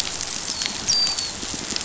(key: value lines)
label: biophony, dolphin
recorder: SoundTrap 500